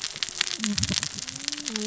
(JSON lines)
{"label": "biophony, cascading saw", "recorder": "SoundTrap 600 or HydroMoth"}